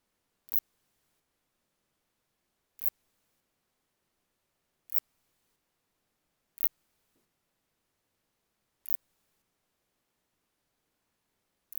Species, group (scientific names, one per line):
Phaneroptera nana
Orthoptera